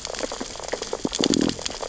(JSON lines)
{"label": "biophony, sea urchins (Echinidae)", "recorder": "SoundTrap 600 or HydroMoth"}
{"label": "biophony, stridulation", "recorder": "SoundTrap 600 or HydroMoth"}